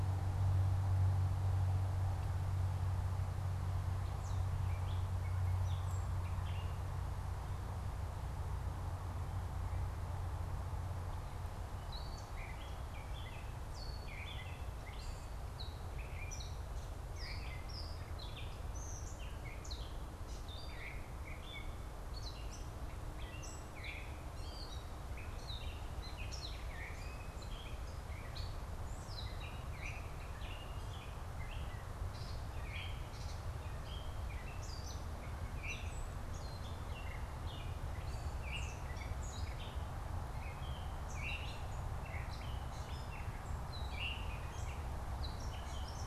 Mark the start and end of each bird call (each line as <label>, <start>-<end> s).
Gray Catbird (Dumetella carolinensis), 3.8-7.2 s
Gray Catbird (Dumetella carolinensis), 11.8-46.1 s
Veery (Catharus fuscescens), 14.0-44.6 s